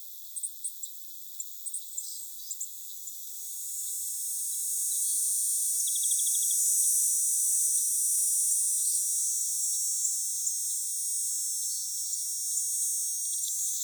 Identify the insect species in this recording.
Neotibicen canicularis